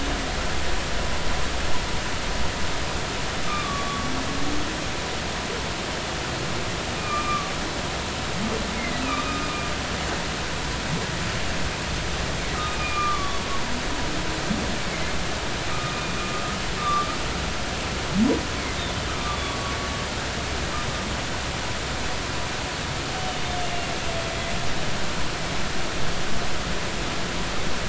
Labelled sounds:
3.4	4.1	humpback whale, 1.1 to 1.3 kHz
7.0	7.5	humpback whale, 1.1 to 2.5 kHz
8.7	9.5	humpback whale, 1.1 to 2.3 kHz
12.7	13.4	humpback whale, 0.99 to 2.5 kHz
15.7	16.1	humpback whale, 1.2 to 2.5 kHz
16.8	17.1	humpback whale, 1.1 to 1.2 kHz
19.4	19.8	humpback whale, 0.93 to 1.2 kHz

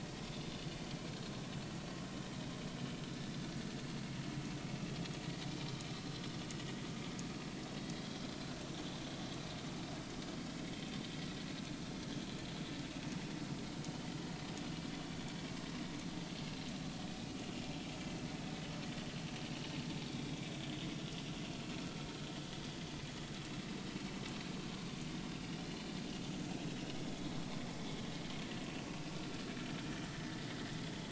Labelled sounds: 20.1	20.4	vessel noise, 3.3 to 3.5 kHz
25.6	25.8	vessel noise, 3.9 to 4.3 kHz
26.5	27.3	vessel noise, 2.6 to 3.5 kHz

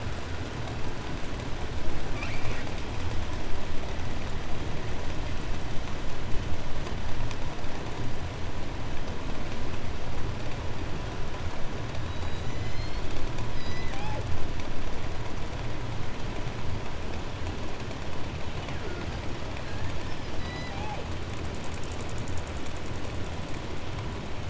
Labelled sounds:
2.0	2.8	killer whale, 0.61 to 7.3 kHz
11.8	14.5	killer whale, southern resident, J pod, call S01, 0.56 to 8.0 kHz
18.4	19.2	killer whale, southern resident, 0.84 to 4.9 kHz
19.9	20.3	killer whale, 0.50 to 6.5 kHz
20.2	21.2	killer whale, southern resident, J pod, call S01, 0.19 to 8.0 kHz

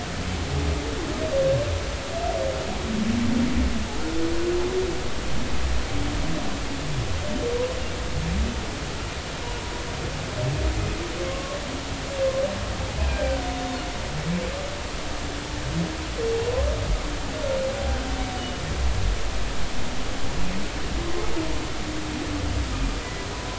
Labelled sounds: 11.3	11.6	humpback whale, 1.0 to 1.2 kHz
13.0	13.4	humpback whale, 1.4 to 1.6 kHz
18.4	18.6	humpback whale, 2.9 to 3.0 kHz

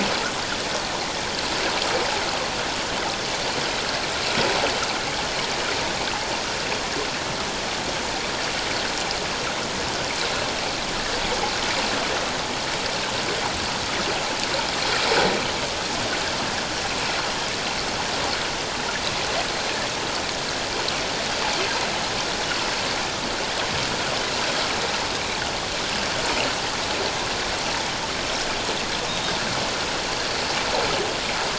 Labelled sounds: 29.1	29.3	Pacific white-sided dolphin, 3.6 to 3.8 kHz

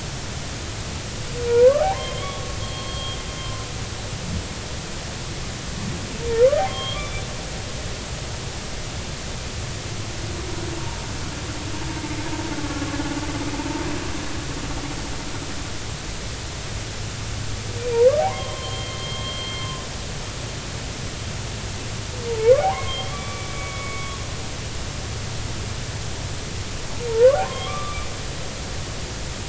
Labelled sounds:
1.5	3.5	humpback whale, 0.80 to 3.4 kHz
6.7	7.3	humpback whale, 1.0 to 3.6 kHz
17.9	19.7	humpback whale, 0.86 to 3.3 kHz
22.6	24.2	humpback whale, 0.80 to 3.4 kHz
27.1	28.1	humpback whale, 0.86 to 3.4 kHz

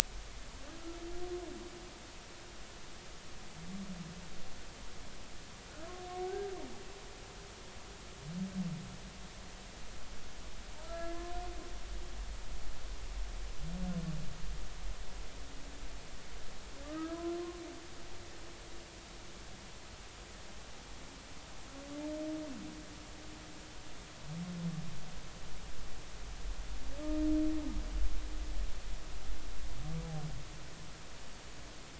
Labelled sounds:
10.8	11.3	humpback whale, 1.2 to 1.8 kHz
16.8	17.2	humpback whale, 1.1 to 2.0 kHz

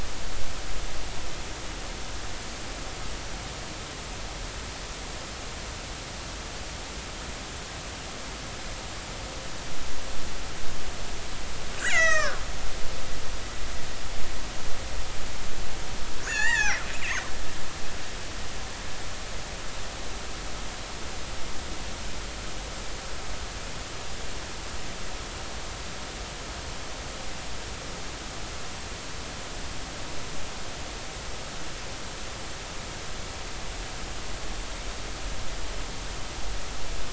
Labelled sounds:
11.8	12.4	killer whale, northern resident, A clan, AB subclan, 0.99 to 7.9 kHz
16.2	16.8	killer whale, northern resident, A clan, AB subclan, 0.80 to 7.4 kHz

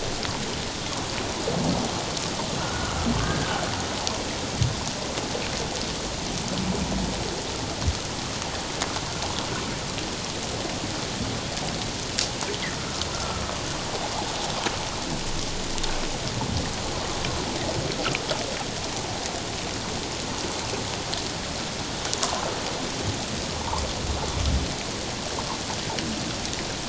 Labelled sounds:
2.6	3.6	humpback whale, 1.2 to 1.7 kHz
13.1	13.4	humpback whale, 1.2 to 1.4 kHz

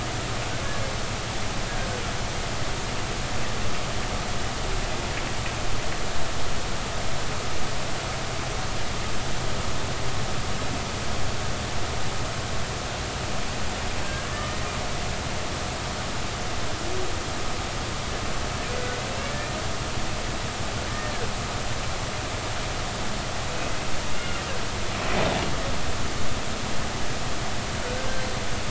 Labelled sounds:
14.2	14.6	humpback whale, 1.7 to 1.9 kHz
19.3	19.6	humpback whale, 1.7 to 1.9 kHz
24.2	24.4	humpback whale, 2.7 to 2.9 kHz

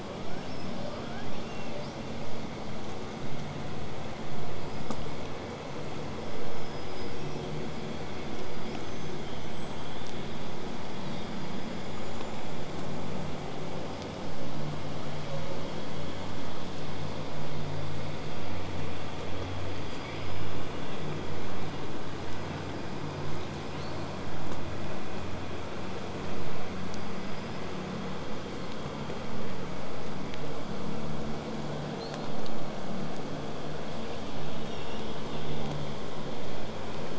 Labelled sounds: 0.0	1.9	killer whale, southern resident, L pod, call S02iii, 0.43 to 8.0 kHz
1.8	2.2	killer whale, southern resident, whistle, 4.6 to 8.0 kHz
4.6	5.1	killer whale, southern resident, whistle, 4.6 to 5.2 kHz
6.2	7.5	killer whale, southern resident, whistle, 4.9 to 5.8 kHz
8.6	10.4	killer whale, southern resident, 3.0 to 8.0 kHz
10.8	12.4	killer whale, southern resident, 3.4 to 8.0 kHz
13.1	19.1	killer whale, southern resident, 7.0 to 8.0 kHz
19.6	21.1	killer whale, southern resident, 1.8 to 8.0 kHz
23.6	24.4	killer whale, southern resident, 2.4 to 8.0 kHz
26.7	27.7	killer whale, southern resident, 4.6 to 8.0 kHz
32.0	32.7	killer whale, southern resident, 3.9 to 8.0 kHz
34.7	35.1	killer whale, southern resident, 2.6 to 6.0 kHz

